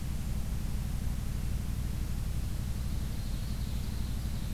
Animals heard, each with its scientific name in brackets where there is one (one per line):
Ovenbird (Seiurus aurocapilla)